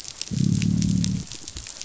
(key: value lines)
label: biophony, growl
recorder: SoundTrap 500